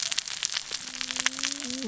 {"label": "biophony, cascading saw", "recorder": "SoundTrap 600 or HydroMoth"}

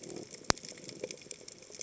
{"label": "biophony", "recorder": "HydroMoth"}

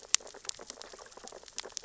{"label": "biophony, sea urchins (Echinidae)", "recorder": "SoundTrap 600 or HydroMoth"}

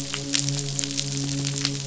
{"label": "biophony, midshipman", "recorder": "SoundTrap 500"}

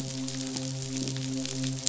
{"label": "biophony, midshipman", "recorder": "SoundTrap 500"}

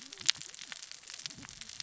{"label": "biophony, cascading saw", "recorder": "SoundTrap 600 or HydroMoth"}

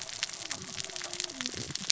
{"label": "biophony, cascading saw", "recorder": "SoundTrap 600 or HydroMoth"}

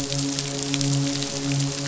{"label": "biophony, midshipman", "recorder": "SoundTrap 500"}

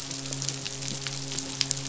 {"label": "biophony, midshipman", "recorder": "SoundTrap 500"}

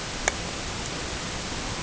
{"label": "ambient", "recorder": "HydroMoth"}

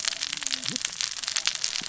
{"label": "biophony, cascading saw", "recorder": "SoundTrap 600 or HydroMoth"}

